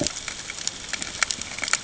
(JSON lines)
{"label": "ambient", "recorder": "HydroMoth"}